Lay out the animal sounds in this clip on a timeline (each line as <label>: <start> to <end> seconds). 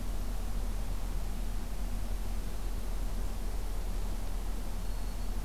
Black-throated Green Warbler (Setophaga virens): 4.8 to 5.4 seconds